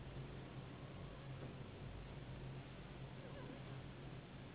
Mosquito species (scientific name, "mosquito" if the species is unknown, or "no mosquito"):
Anopheles gambiae s.s.